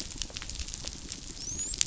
{"label": "biophony, dolphin", "recorder": "SoundTrap 500"}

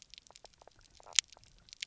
{"label": "biophony, knock croak", "recorder": "SoundTrap 300"}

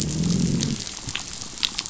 {"label": "biophony, growl", "recorder": "SoundTrap 500"}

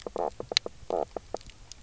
{"label": "biophony, knock croak", "recorder": "SoundTrap 300"}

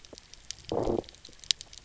{"label": "biophony, low growl", "recorder": "SoundTrap 300"}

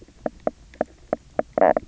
{"label": "biophony, knock croak", "recorder": "SoundTrap 300"}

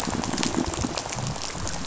{"label": "biophony, rattle", "recorder": "SoundTrap 500"}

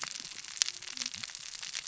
{"label": "biophony, cascading saw", "recorder": "SoundTrap 600 or HydroMoth"}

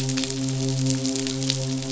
{"label": "biophony, midshipman", "recorder": "SoundTrap 500"}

